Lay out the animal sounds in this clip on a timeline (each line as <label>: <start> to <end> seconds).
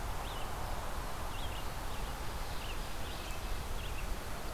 Red-eyed Vireo (Vireo olivaceus): 0.0 to 4.5 seconds
Red-breasted Nuthatch (Sitta canadensis): 3.0 to 3.7 seconds